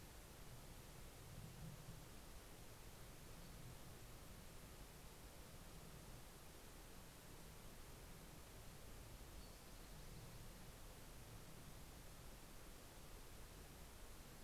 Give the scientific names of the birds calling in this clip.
Leiothlypis ruficapilla